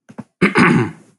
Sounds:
Throat clearing